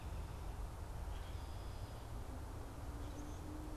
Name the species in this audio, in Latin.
Agelaius phoeniceus, Quiscalus quiscula